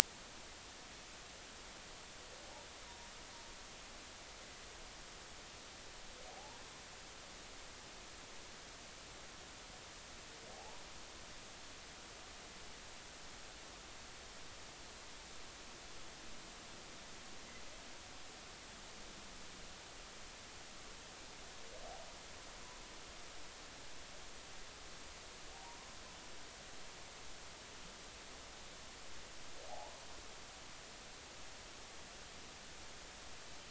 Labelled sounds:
6.3	6.6	humpback whale, 0.80 to 0.99 kHz
10.5	10.8	humpback whale, 0.80 to 1.1 kHz
29.7	30.0	humpback whale, 0.80 to 1.1 kHz

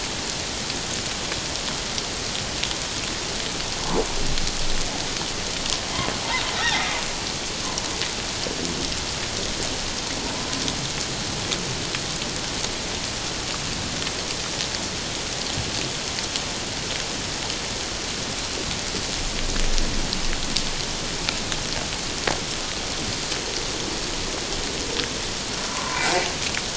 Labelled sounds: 25.7	26.0	humpback whale, 0.88 to 1.2 kHz

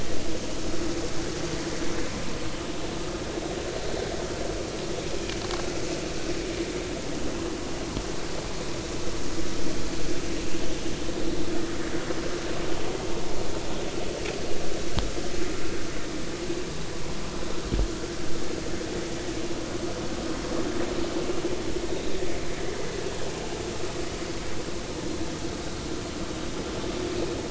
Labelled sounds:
21.9	22.2	killer whale, offshore, 3.6 to 3.9 kHz

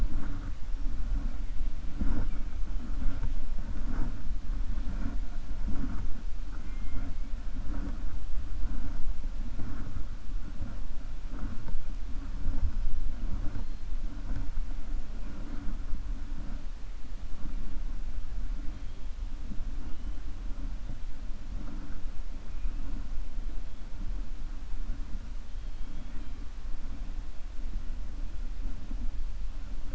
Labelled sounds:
25.5	26.3	killer whale, 0.99 to 4.0 kHz

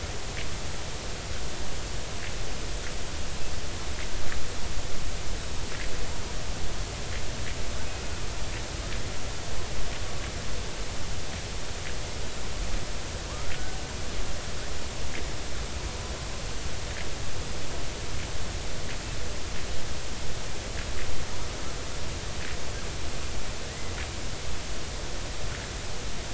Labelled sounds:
13.3	13.8	killer whale, Bigg's (transient), 0.90 to 1.6 kHz

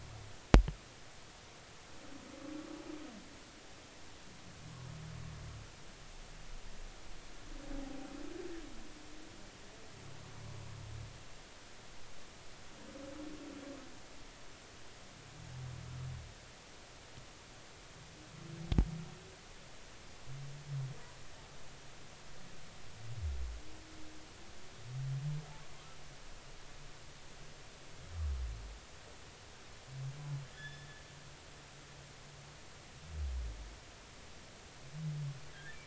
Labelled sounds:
7.8	8.1	humpback whale, 0.80 to 0.86 kHz
30.5	31.0	humpback whale, 1.6 to 5.3 kHz
35.5	35.8	humpback whale, 1.5 to 1.9 kHz

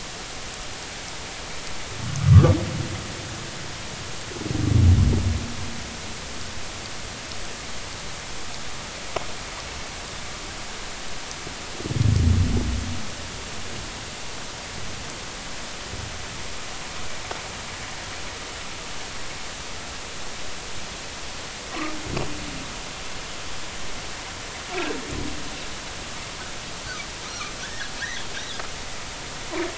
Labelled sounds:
2.3	2.5	humpback whale, 1.1 to 1.3 kHz
27.6	27.9	humpback whale, 1.4 to 1.9 kHz
29.3	29.6	humpback whale, 3.2 to 3.8 kHz

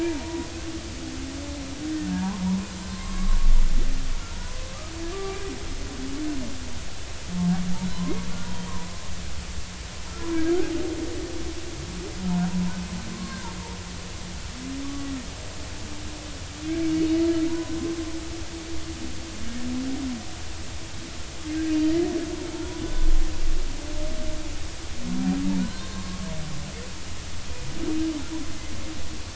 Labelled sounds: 0.0	0.5	humpback whale, 0.86 to 2.4 kHz
2.1	2.4	humpback whale, 0.86 to 1.1 kHz
2.9	3.4	humpback whale, 0.93 to 1.2 kHz
4.3	4.6	humpback whale, 0.90 to 1.0 kHz
5.1	5.4	humpback whale, 1.1 to 1.2 kHz
7.9	8.3	humpback whale, 0.96 to 1.2 kHz
10.4	10.7	humpback whale, 1.2 to 1.6 kHz
13.1	13.4	humpback whale, 1.0 to 1.2 kHz
14.8	15.1	humpback whale, 1.1 to 1.2 kHz
16.9	17.2	humpback whale, 4.4 to 4.5 kHz
17.5	17.8	humpback whale, 0.93 to 1.1 kHz
22.6	23.1	humpback whale, 1.4 to 3.5 kHz
25.6	26.2	humpback whale, 0.99 to 4.2 kHz

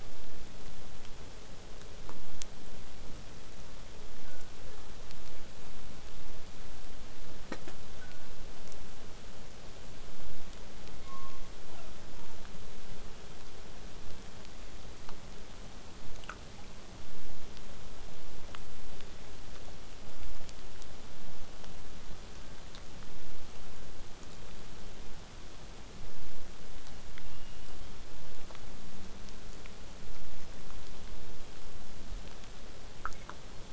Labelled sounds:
4.2	5.2	killer whale, southern resident, 0.19 to 1.7 kHz
8.0	8.3	killer whale, southern resident, 1.3 to 1.7 kHz
11.0	12.5	killer whale, southern resident, J pod, call S07, 0.43 to 5.5 kHz
15.0	20.0	vessel noise, 0 to 8.0 kHz
26.9	28.0	killer whale, southern resident, 2.5 to 3.4 kHz

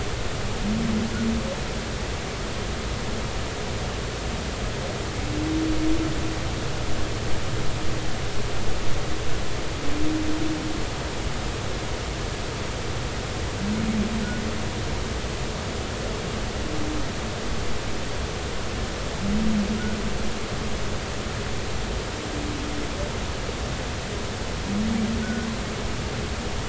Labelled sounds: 25.2	25.5	humpback whale, 1.4 to 1.6 kHz

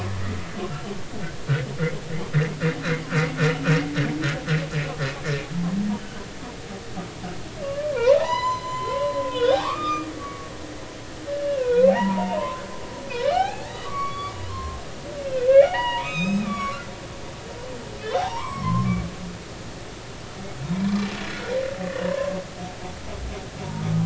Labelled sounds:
5.5	5.8	humpback whale, 0.80 to 1.1 kHz
7.6	10.5	humpback whale, 0.80 to 6.1 kHz
11.3	12.6	humpback whale, 0.80 to 3.0 kHz
13.3	14.8	humpback whale, 0.80 to 4.6 kHz
15.2	16.8	humpback whale, 0.80 to 6.5 kHz
18.0	19.0	humpback whale, 0.80 to 3.8 kHz
19.3	19.8	humpback whale, 2.0 to 2.4 kHz
21.3	22.3	humpback whale, 0.90 to 1.5 kHz

